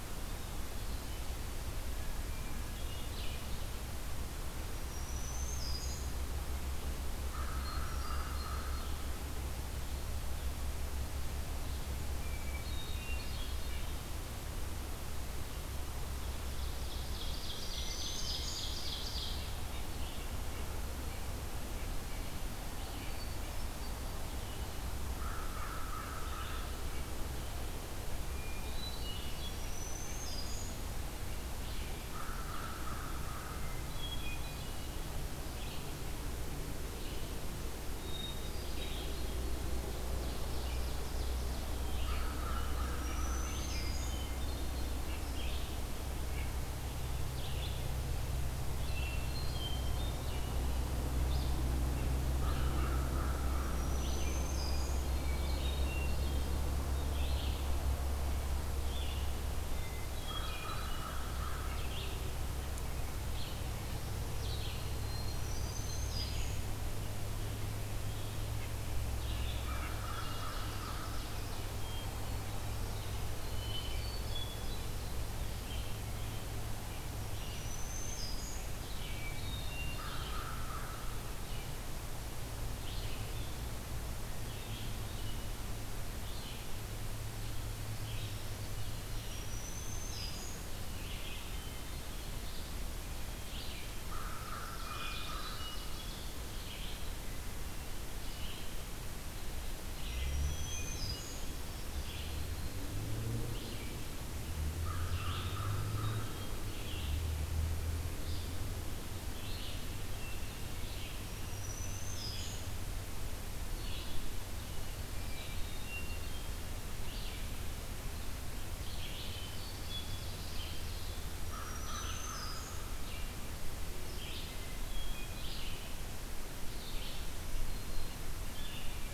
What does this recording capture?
Hermit Thrush, Red-eyed Vireo, Black-throated Green Warbler, American Crow, Ovenbird, White-breasted Nuthatch